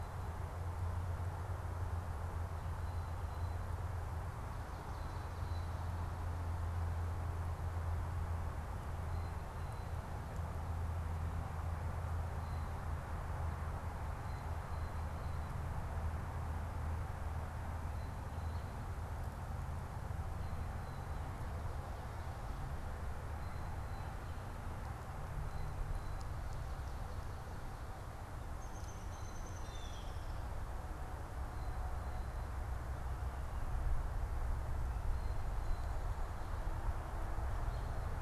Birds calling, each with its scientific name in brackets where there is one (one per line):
Downy Woodpecker (Dryobates pubescens)
Blue Jay (Cyanocitta cristata)